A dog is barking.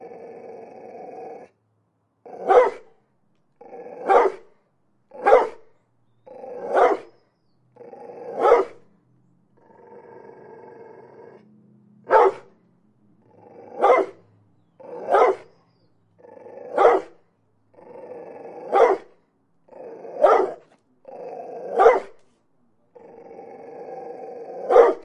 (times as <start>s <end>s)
2.5s 2.9s, 4.1s 4.4s, 5.3s 5.6s, 6.8s 7.1s, 8.4s 8.7s, 12.1s 12.4s, 13.8s 14.1s, 15.1s 15.5s, 16.8s 17.1s, 18.7s 19.1s, 20.2s 20.6s, 21.8s 22.1s, 24.7s 25.0s